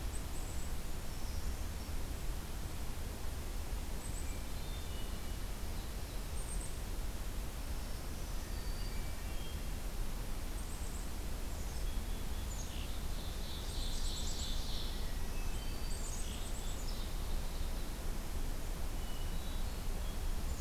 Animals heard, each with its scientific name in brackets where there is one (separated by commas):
Black-throated Green Warbler (Setophaga virens), Ovenbird (Seiurus aurocapilla), Black-capped Chickadee (Poecile atricapillus), Hermit Thrush (Catharus guttatus)